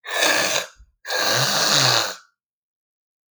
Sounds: Throat clearing